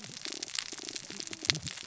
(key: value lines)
label: biophony, cascading saw
recorder: SoundTrap 600 or HydroMoth